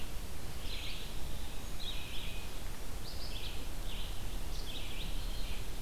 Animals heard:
Red-eyed Vireo (Vireo olivaceus)

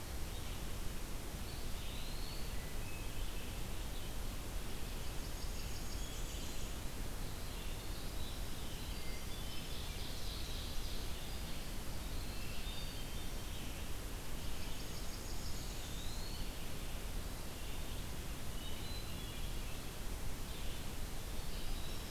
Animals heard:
Winter Wren (Troglodytes hiemalis), Ovenbird (Seiurus aurocapilla), Eastern Wood-Pewee (Contopus virens), Hermit Thrush (Catharus guttatus), Blackburnian Warbler (Setophaga fusca), Red-eyed Vireo (Vireo olivaceus)

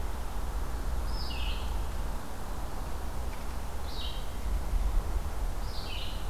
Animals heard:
Red-eyed Vireo (Vireo olivaceus)

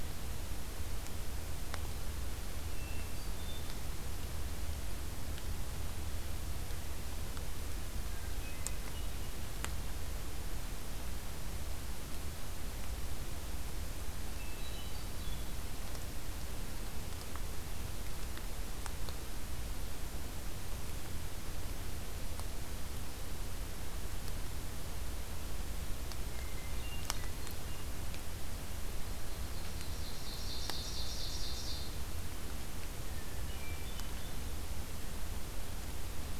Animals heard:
Hermit Thrush (Catharus guttatus), Ovenbird (Seiurus aurocapilla)

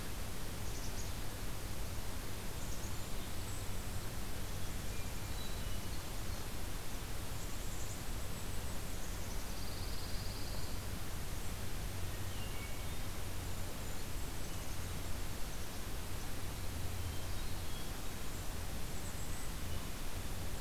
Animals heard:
Golden-crowned Kinglet (Regulus satrapa), Hermit Thrush (Catharus guttatus), Pine Warbler (Setophaga pinus), Black-capped Chickadee (Poecile atricapillus)

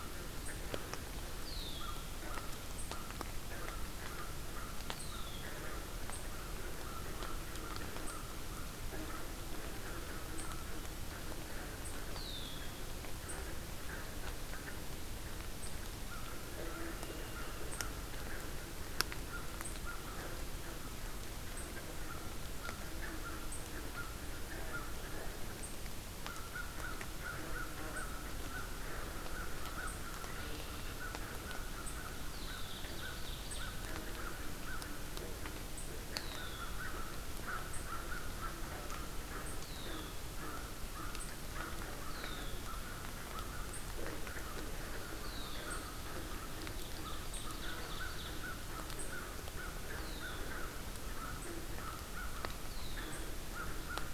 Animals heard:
Red-winged Blackbird (Agelaius phoeniceus), Ovenbird (Seiurus aurocapilla), American Crow (Corvus brachyrhynchos)

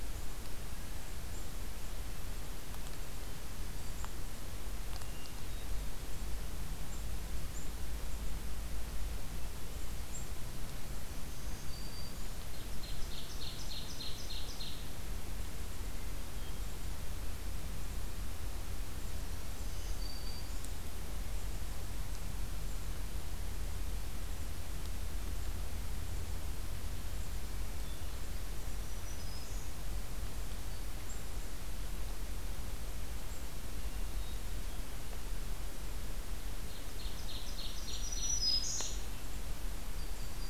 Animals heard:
Black-throated Green Warbler (Setophaga virens), Yellow-rumped Warbler (Setophaga coronata), Hermit Thrush (Catharus guttatus), Ovenbird (Seiurus aurocapilla)

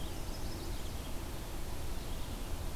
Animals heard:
Chestnut-sided Warbler (Setophaga pensylvanica), Red-eyed Vireo (Vireo olivaceus)

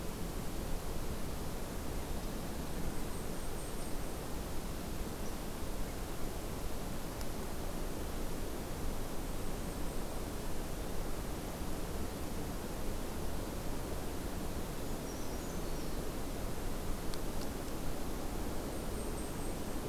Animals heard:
Blackpoll Warbler (Setophaga striata), Brown Creeper (Certhia americana)

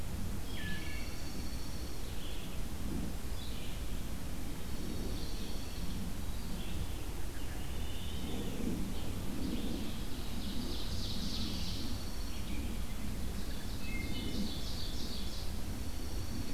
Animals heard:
Dark-eyed Junco (Junco hyemalis), Wood Thrush (Hylocichla mustelina), Red-eyed Vireo (Vireo olivaceus), Ovenbird (Seiurus aurocapilla)

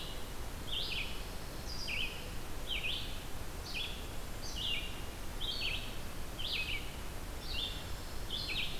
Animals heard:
Red-eyed Vireo (Vireo olivaceus)

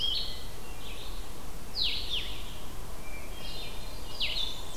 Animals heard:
Blue-headed Vireo (Vireo solitarius), Hermit Thrush (Catharus guttatus), Blackburnian Warbler (Setophaga fusca)

